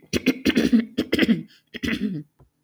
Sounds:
Throat clearing